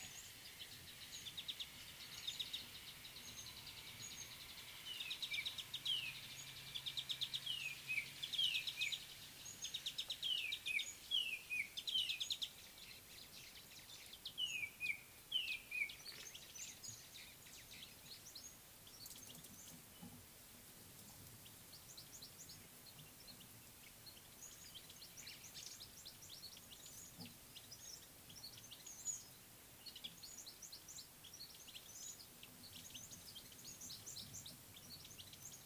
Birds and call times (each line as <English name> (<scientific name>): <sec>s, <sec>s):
Mariqua Sunbird (Cinnyris mariquensis): 3.9s, 22.2s, 30.7s
Spotted Morning-Thrush (Cichladusa guttata): 7.7s, 14.6s